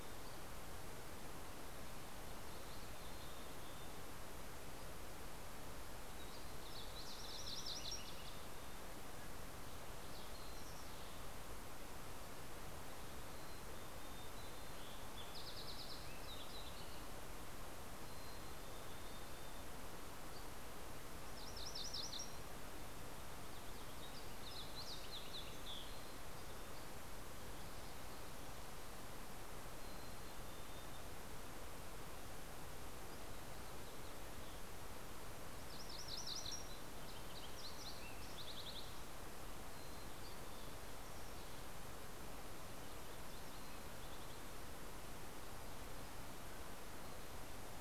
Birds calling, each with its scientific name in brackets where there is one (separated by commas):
Fox Sparrow (Passerella iliaca), MacGillivray's Warbler (Geothlypis tolmiei), Mountain Chickadee (Poecile gambeli), Dusky Flycatcher (Empidonax oberholseri)